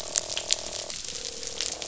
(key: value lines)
label: biophony, croak
recorder: SoundTrap 500